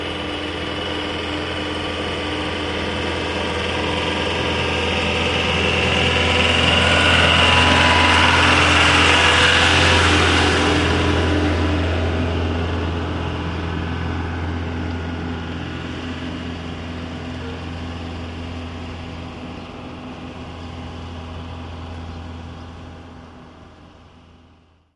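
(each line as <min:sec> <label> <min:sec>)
0:00.0 A very loud construction truck engine. 0:24.1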